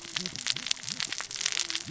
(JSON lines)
{"label": "biophony, cascading saw", "recorder": "SoundTrap 600 or HydroMoth"}